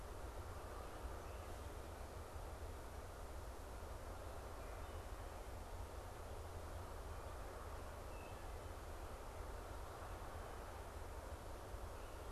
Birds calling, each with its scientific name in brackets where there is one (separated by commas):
Wood Thrush (Hylocichla mustelina)